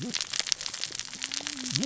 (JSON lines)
{"label": "biophony, cascading saw", "recorder": "SoundTrap 600 or HydroMoth"}